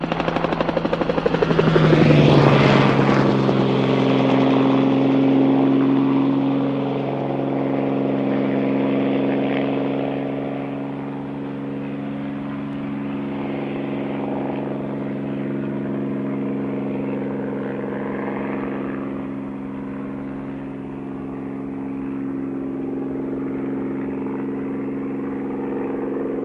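A helicopter flies closer and then fades into the distance. 0:00.0 - 0:26.4

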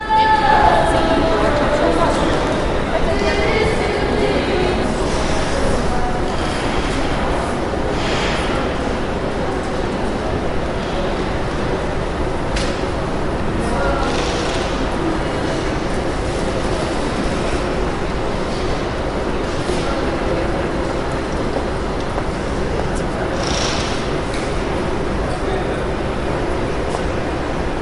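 Someone is singing loudly in the background. 0:00.0 - 0:07.9
Echoing human activity in the background. 0:00.0 - 0:27.8
Footsteps in the background. 0:22.1 - 0:23.5
Roller shutter is closing loudly. 0:23.4 - 0:24.6

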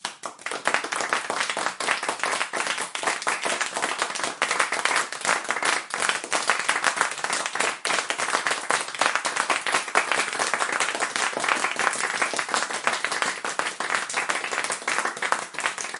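An audience is clapping repeatedly with an irregular rhythm indoors. 0:00.0 - 0:16.0

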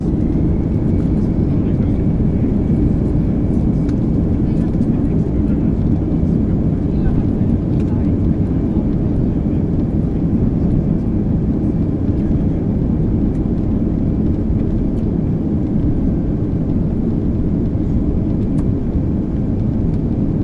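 Constant humming typical of an airplane cabin. 0:00.0 - 0:01.6
People talking quietly in the background inside an airplane. 0:01.6 - 0:11.0
Constant humming typical of an airplane cabin. 0:11.0 - 0:20.4

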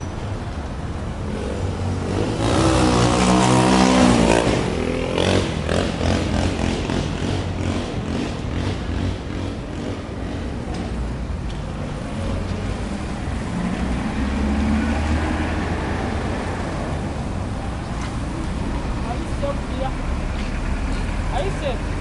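A motorcycle accelerates. 0:00.1 - 0:22.0
Motorcycle engine accelerating. 0:02.1 - 0:10.0
A motorcycle is driving by. 0:12.3 - 0:18.2

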